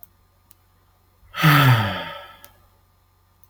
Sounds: Sigh